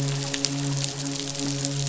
{"label": "biophony, midshipman", "recorder": "SoundTrap 500"}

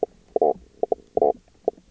{"label": "biophony, knock croak", "recorder": "SoundTrap 300"}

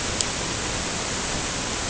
{"label": "ambient", "recorder": "HydroMoth"}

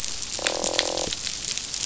{"label": "biophony, croak", "recorder": "SoundTrap 500"}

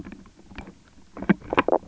{"label": "biophony, knock croak", "recorder": "SoundTrap 300"}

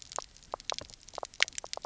{"label": "biophony, knock croak", "recorder": "SoundTrap 300"}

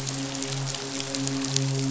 {"label": "biophony, midshipman", "recorder": "SoundTrap 500"}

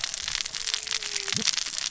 {"label": "biophony, cascading saw", "recorder": "SoundTrap 600 or HydroMoth"}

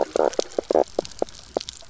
{"label": "biophony, knock croak", "recorder": "SoundTrap 300"}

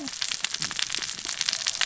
{"label": "biophony, cascading saw", "recorder": "SoundTrap 600 or HydroMoth"}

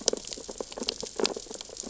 {"label": "biophony, sea urchins (Echinidae)", "recorder": "SoundTrap 600 or HydroMoth"}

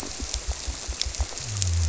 {"label": "biophony", "recorder": "SoundTrap 300"}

